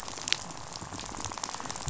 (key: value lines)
label: biophony, rattle
recorder: SoundTrap 500